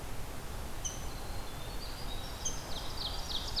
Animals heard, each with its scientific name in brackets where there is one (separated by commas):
Rose-breasted Grosbeak (Pheucticus ludovicianus), Winter Wren (Troglodytes hiemalis), Ovenbird (Seiurus aurocapilla)